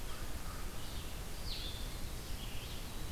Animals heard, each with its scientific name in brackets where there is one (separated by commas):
American Crow (Corvus brachyrhynchos), Blue-headed Vireo (Vireo solitarius), Red-eyed Vireo (Vireo olivaceus)